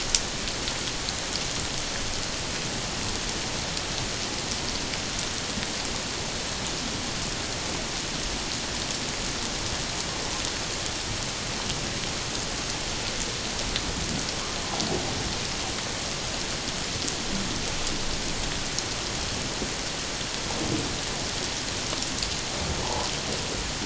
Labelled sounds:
22.8	23.1	humpback whale, 0.78 to 1.1 kHz

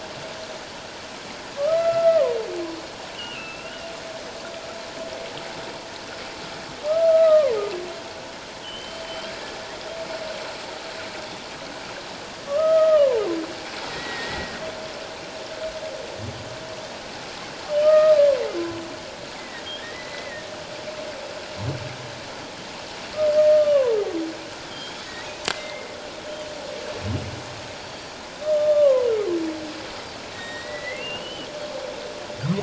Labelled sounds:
1.6	3.7	humpback whale, 0.91 to 3.1 kHz
6.9	7.6	humpback whale, 0.84 to 2.0 kHz
8.6	9.3	humpback whale, 2.8 to 3.4 kHz
12.5	14.6	humpback whale, 0.84 to 2.0 kHz
17.8	18.4	humpback whale, 0.94 to 1.9 kHz
19.3	20.5	humpback whale, 1.7 to 2.3 kHz
23.3	24.0	humpback whale, 0.84 to 1.9 kHz
24.7	25.0	humpback whale, 3.1 to 3.3 kHz
25.5	25.9	humpback whale, 2.0 to 2.2 kHz
27.8	28.2	Pacific white-sided dolphin, 4.5 to 4.8 kHz
28.4	29.1	humpback whale, 0.94 to 1.3 kHz
30.3	31.0	Pacific white-sided dolphin, 1.8 to 3.8 kHz
30.4	31.5	humpback whale, 2.6 to 7.6 kHz

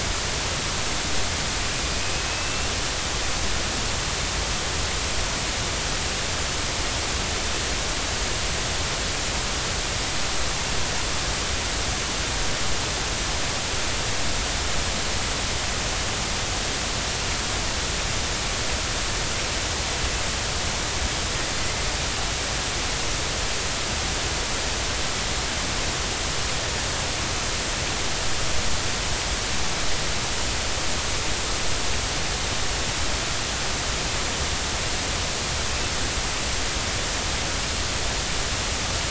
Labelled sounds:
1.8	2.7	killer whale, Bigg's (transient), 2.4 to 2.8 kHz
21.6	21.8	killer whale, Bigg's (transient), 2.0 to 2.1 kHz

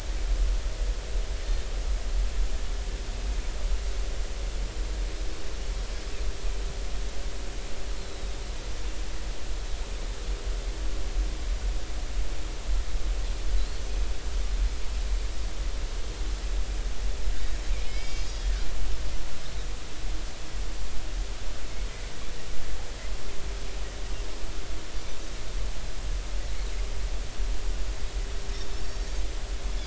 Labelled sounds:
8.0	8.3	Pacific white-sided dolphin, 3.7 to 4.0 kHz
13.6	13.8	Pacific white-sided dolphin, 3.9 to 4.5 kHz
17.9	18.5	Pacific white-sided dolphin, 2.1 to 5.3 kHz
28.8	29.1	Pacific white-sided dolphin, 4.5 to 4.8 kHz

